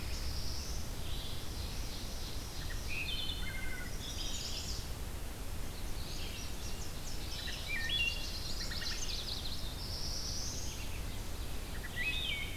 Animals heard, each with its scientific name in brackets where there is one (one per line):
Wood Thrush (Hylocichla mustelina)
Red-eyed Vireo (Vireo olivaceus)
Chestnut-sided Warbler (Setophaga pensylvanica)
Indigo Bunting (Passerina cyanea)
Black-and-white Warbler (Mniotilta varia)
Black-throated Blue Warbler (Setophaga caerulescens)
Ovenbird (Seiurus aurocapilla)